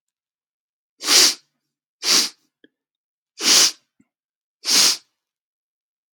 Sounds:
Sniff